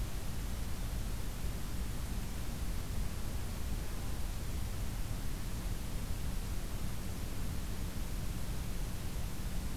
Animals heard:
forest ambience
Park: Acadia National Park